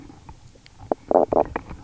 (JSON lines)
{"label": "biophony, knock croak", "recorder": "SoundTrap 300"}